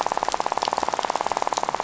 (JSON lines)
{"label": "biophony, rattle", "recorder": "SoundTrap 500"}